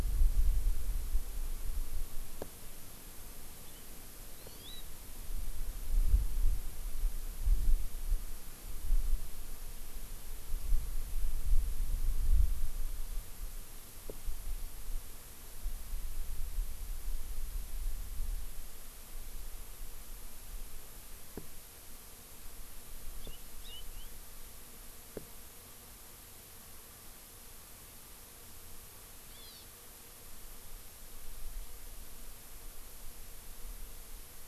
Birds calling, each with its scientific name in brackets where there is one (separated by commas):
Hawaii Amakihi (Chlorodrepanis virens)